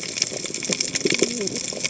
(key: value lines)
label: biophony, cascading saw
recorder: HydroMoth